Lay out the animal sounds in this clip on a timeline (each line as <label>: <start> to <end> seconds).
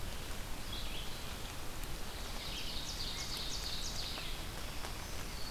Red-eyed Vireo (Vireo olivaceus): 0.0 to 5.5 seconds
Ovenbird (Seiurus aurocapilla): 2.4 to 4.5 seconds